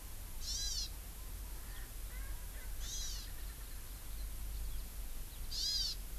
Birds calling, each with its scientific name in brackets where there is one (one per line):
Erckel's Francolin (Pternistis erckelii)
Hawaii Amakihi (Chlorodrepanis virens)